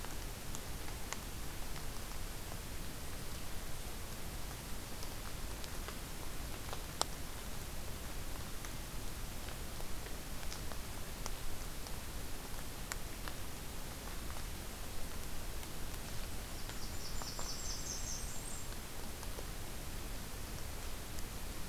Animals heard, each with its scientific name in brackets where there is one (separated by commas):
Blackburnian Warbler (Setophaga fusca)